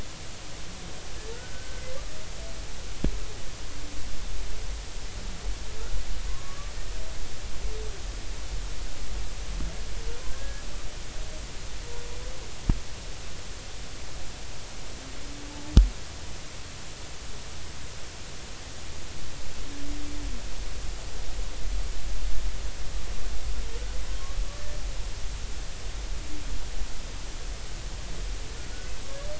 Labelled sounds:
1.3	1.8	humpback whale, 1.4 to 1.6 kHz
6.3	6.7	humpback whale, 0.99 to 1.2 kHz
10.4	10.7	humpback whale, 1.6 to 1.7 kHz

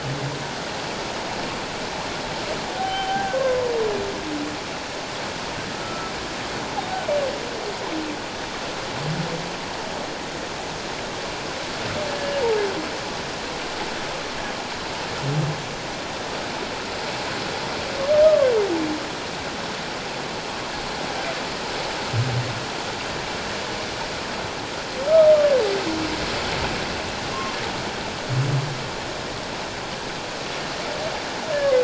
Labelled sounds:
2.8	3.7	humpback whale, 0.78 to 3.2 kHz
5.7	6.1	humpback whale, 1.3 to 1.4 kHz
18.2	18.5	humpback whale, 1.0 to 1.3 kHz

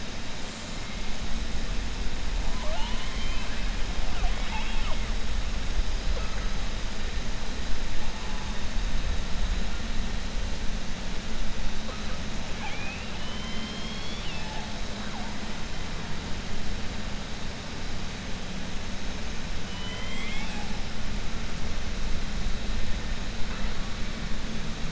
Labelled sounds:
4.1	5.0	killer whale, 0.45 to 3.7 kHz
19.6	20.7	killer whale, 0.82 to 4.0 kHz

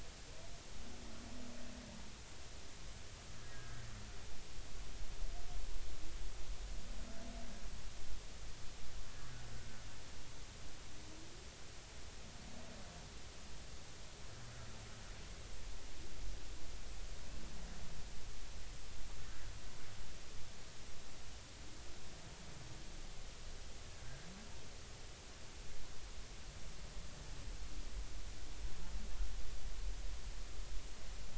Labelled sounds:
3.5	3.8	humpback whale, 1.5 to 1.7 kHz
24.0	24.3	humpback whale, 1.5 to 1.7 kHz

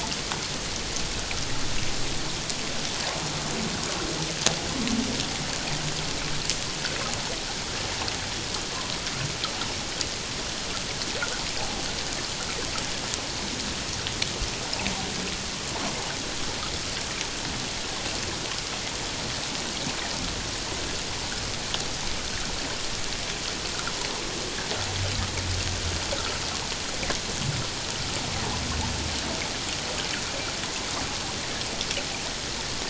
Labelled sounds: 26.2	26.4	water noise, 1.2 to 1.5 kHz

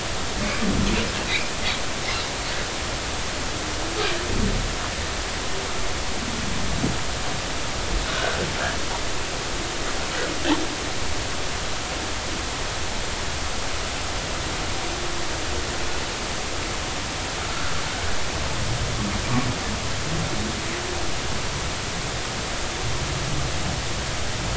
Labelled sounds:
0.4	0.7	humpback whale, 2.1 to 2.5 kHz
8.1	8.4	humpback whale, 1.4 to 1.6 kHz
17.5	17.7	humpback whale, 1.3 to 1.6 kHz

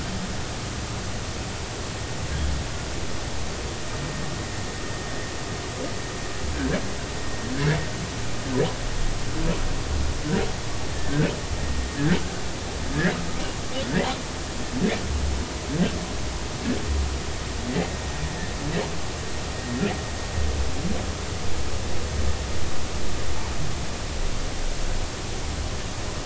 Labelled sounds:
6.5	6.8	humpback whale, 1.5 to 1.8 kHz
12.0	12.2	humpback whale, 1.5 to 1.8 kHz

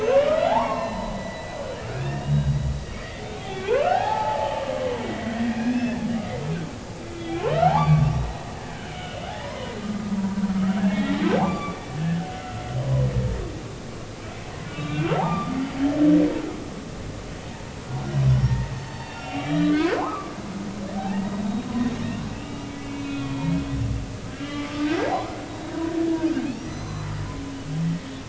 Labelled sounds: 0.0	2.7	humpback whale, 0.80 to 5.6 kHz
3.0	5.0	humpback whale, 0.80 to 4.8 kHz
5.3	6.0	humpback whale, 1.6 to 5.3 kHz
7.3	8.2	humpback whale, 0.80 to 4.7 kHz
8.9	9.7	humpback whale, 0.93 to 3.0 kHz
10.8	13.1	humpback whale, 0.93 to 2.4 kHz
14.7	15.5	humpback whale, 0.80 to 3.4 kHz
18.4	20.4	humpback whale, 0.80 to 5.6 kHz
21.0	21.5	humpback whale, 0.80 to 2.0 kHz
22.3	23.6	humpback whale, 2.1 to 3.4 kHz
24.4	24.9	humpback whale, 1.1 to 3.0 kHz
26.7	27.1	humpback whale, 3.9 to 6.1 kHz

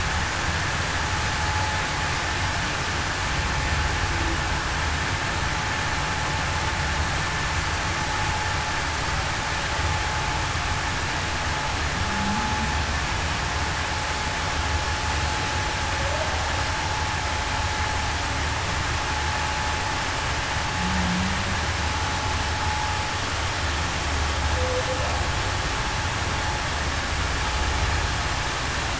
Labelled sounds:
12.0	12.5	humpback whale, 0.19 to 0.26 kHz
20.8	21.4	humpback whale, 0.19 to 0.21 kHz

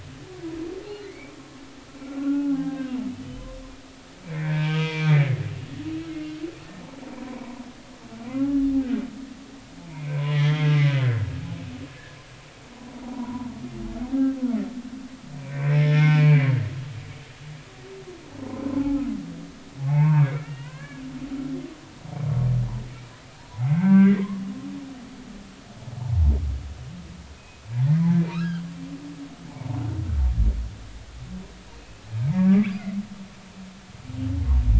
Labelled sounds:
0.9	1.3	humpback whale, 1.8 to 4.4 kHz
2.0	3.4	humpback whale, 0.80 to 3.1 kHz
4.4	5.2	humpback whale, 0.90 to 3.4 kHz
7.2	7.6	humpback whale, 0.93 to 1.1 kHz
9.9	11.3	humpback whale, 0.96 to 3.4 kHz
13.1	13.5	humpback whale, 0.90 to 1.1 kHz
14.0	14.4	humpback whale, 0.80 to 1.7 kHz
15.7	16.6	humpback whale, 1.7 to 5.3 kHz
18.4	19.0	humpback whale, 0.80 to 1.1 kHz
19.8	21.0	humpback whale, 0.80 to 2.9 kHz
23.6	24.4	humpback whale, 0.86 to 2.9 kHz
26.0	26.3	humpback whale, 0.80 to 0.99 kHz
27.3	28.6	humpback whale, 1.1 to 2.8 kHz
29.5	29.8	humpback whale, 0.80 to 1.1 kHz
31.8	32.7	humpback whale, 1.1 to 2.8 kHz

